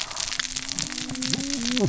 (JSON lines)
{"label": "biophony, cascading saw", "recorder": "SoundTrap 600 or HydroMoth"}